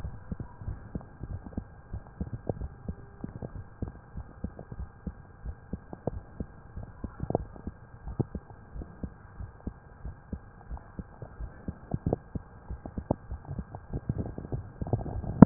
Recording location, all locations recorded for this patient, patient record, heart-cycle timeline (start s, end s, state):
tricuspid valve (TV)
aortic valve (AV)+pulmonary valve (PV)+tricuspid valve (TV)+mitral valve (MV)
#Age: Child
#Sex: Male
#Height: 132.0 cm
#Weight: 50.6 kg
#Pregnancy status: False
#Murmur: Absent
#Murmur locations: nan
#Most audible location: nan
#Systolic murmur timing: nan
#Systolic murmur shape: nan
#Systolic murmur grading: nan
#Systolic murmur pitch: nan
#Systolic murmur quality: nan
#Diastolic murmur timing: nan
#Diastolic murmur shape: nan
#Diastolic murmur grading: nan
#Diastolic murmur pitch: nan
#Diastolic murmur quality: nan
#Outcome: Normal
#Campaign: 2015 screening campaign
0.00	1.89	unannotated
1.89	2.02	S1
2.02	2.18	systole
2.18	2.32	S2
2.32	2.58	diastole
2.58	2.72	S1
2.72	2.86	systole
2.86	2.96	S2
2.96	4.12	unannotated
4.12	4.26	S1
4.26	4.41	systole
4.41	4.52	S2
4.52	4.76	diastole
4.76	4.88	S1
4.88	5.04	systole
5.04	5.14	S2
5.14	5.43	diastole
5.43	5.56	S1
5.56	5.69	systole
5.69	5.80	S2
5.80	6.08	diastole
6.08	6.22	S1
6.22	6.36	systole
6.36	6.46	S2
6.46	6.74	diastole
6.74	6.88	S1
6.88	7.00	systole
7.00	7.10	S2
7.10	7.34	diastole
7.34	7.50	S1
7.50	7.63	systole
7.63	7.74	S2
7.74	8.03	diastole
8.03	8.18	S1
8.18	8.32	systole
8.32	8.42	S2
8.42	8.72	diastole
8.72	8.86	S1
8.86	8.99	systole
8.99	9.12	S2
9.12	9.37	diastole
9.37	9.50	S1
9.50	9.64	systole
9.64	9.76	S2
9.76	10.02	diastole
10.02	10.16	S1
10.16	10.29	systole
10.29	10.42	S2
10.42	10.67	diastole
10.67	10.82	S1
10.82	10.96	systole
10.96	11.08	S2
11.08	11.37	diastole
11.37	11.52	S1
11.52	11.66	systole
11.66	11.78	S2
11.78	15.46	unannotated